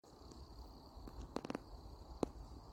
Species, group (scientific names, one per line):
Nemobius sylvestris
Orthoptera